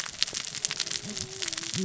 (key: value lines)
label: biophony, cascading saw
recorder: SoundTrap 600 or HydroMoth